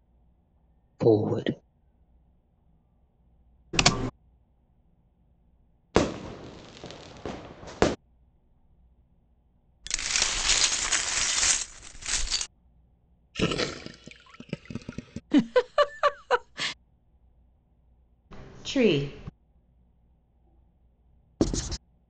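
At 1.0 seconds, someone says "forward." At 3.73 seconds, there is typing. At 5.94 seconds, the sound of fireworks rings out. At 9.83 seconds, glass can be heard. At 13.33 seconds, you can hear gurgling. At 15.3 seconds, someone giggles. At 18.66 seconds, a voice says "tree." At 21.4 seconds, the sound of writing comes through.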